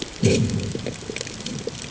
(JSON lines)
{"label": "anthrophony, bomb", "recorder": "HydroMoth"}